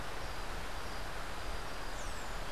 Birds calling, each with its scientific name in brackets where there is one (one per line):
Rose-throated Becard (Pachyramphus aglaiae)